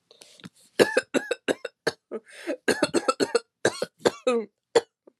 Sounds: Cough